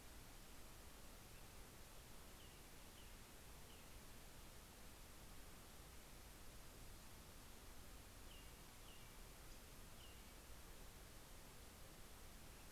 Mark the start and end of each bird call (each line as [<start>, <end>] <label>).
[1.57, 4.37] American Robin (Turdus migratorius)
[8.07, 10.57] American Robin (Turdus migratorius)